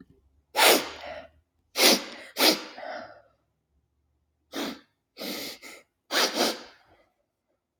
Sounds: Sniff